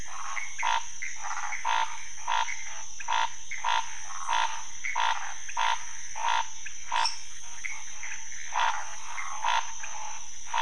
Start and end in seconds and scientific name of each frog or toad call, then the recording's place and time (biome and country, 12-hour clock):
0.0	1.6	Phyllomedusa sauvagii
0.0	10.6	Pithecopus azureus
0.0	10.6	Scinax fuscovarius
4.0	5.4	Phyllomedusa sauvagii
7.0	7.4	Dendropsophus nanus
Cerrado, Brazil, 2:30am